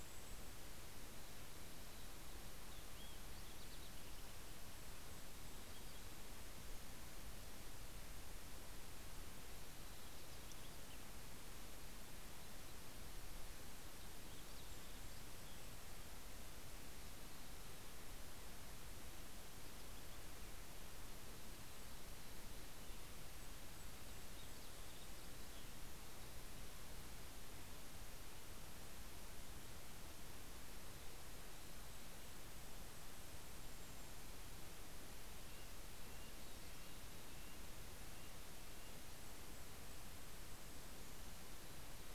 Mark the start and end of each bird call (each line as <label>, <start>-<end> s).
Golden-crowned Kinglet (Regulus satrapa), 0.0-1.2 s
Vesper Sparrow (Pooecetes gramineus), 1.6-16.7 s
Golden-crowned Kinglet (Regulus satrapa), 3.8-6.5 s
Golden-crowned Kinglet (Regulus satrapa), 13.9-16.2 s
Vesper Sparrow (Pooecetes gramineus), 22.4-26.4 s
Golden-crowned Kinglet (Regulus satrapa), 22.8-25.9 s
Golden-crowned Kinglet (Regulus satrapa), 31.0-35.5 s
Red-breasted Nuthatch (Sitta canadensis), 34.9-40.1 s
Golden-crowned Kinglet (Regulus satrapa), 38.2-42.1 s